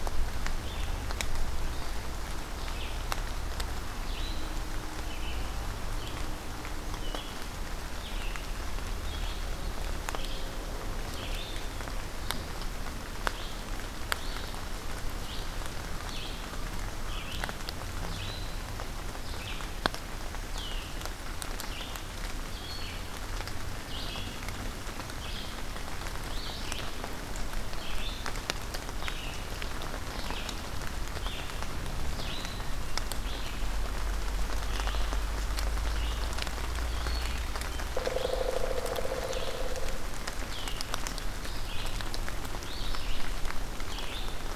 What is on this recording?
Red-eyed Vireo, Pileated Woodpecker